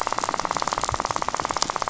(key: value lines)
label: biophony, rattle
recorder: SoundTrap 500